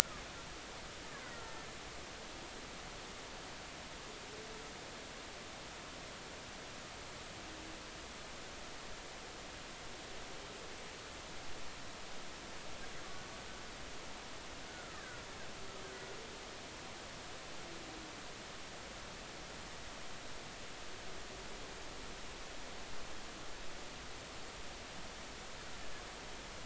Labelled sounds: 14.7	15.3	killer whale, Bigg's (transient), 1.2 to 1.9 kHz

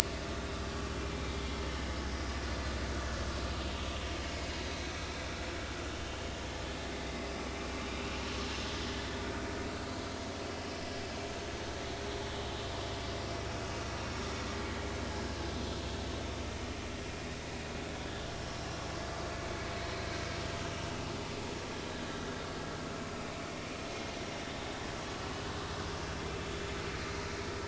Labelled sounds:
2.1	2.3	vessel noise, 4.9 to 5.1 kHz
4.6	4.9	vessel noise, 3.9 to 4.1 kHz
5.9	6.2	vessel noise, 3.0 to 3.1 kHz
13.5	13.9	vessel noise, 2.5 to 2.9 kHz

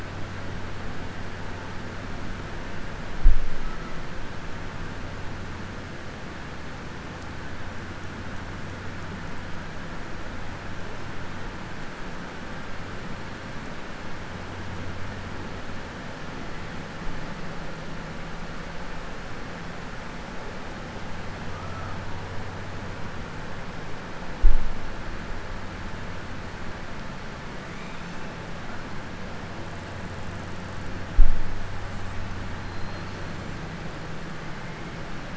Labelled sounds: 32.6	33.2	killer whale, southern resident, 3.7 to 5.3 kHz

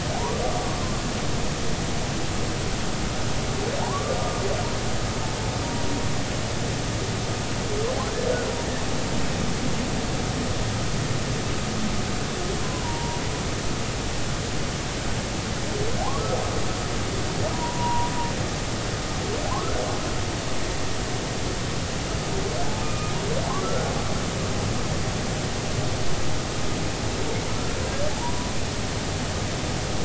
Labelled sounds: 0.1	0.8	humpback whale, 0.80 to 1.2 kHz
3.8	4.2	humpback whale, 0.80 to 1.2 kHz
12.8	13.2	humpback whale, 0.90 to 1.0 kHz
17.5	18.1	humpback whale, 0.90 to 1.0 kHz
22.8	23.1	humpback whale, 1.1 to 2.5 kHz
23.6	23.9	humpback whale, 1.2 to 1.5 kHz
28.2	28.5	humpback whale, 0.83 to 1.0 kHz

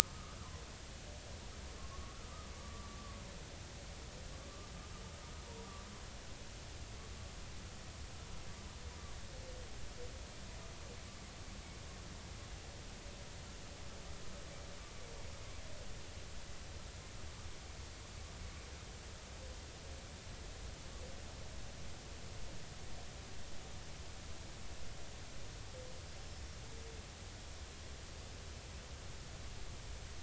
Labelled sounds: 0.4	0.6	humpback whale, 0.96 to 1.4 kHz
1.0	2.2	humpback whale, 0.99 to 1.3 kHz
2.6	3.0	humpback whale, 1.1 to 1.2 kHz
26.2	26.6	humpback whale, 5.3 to 5.6 kHz

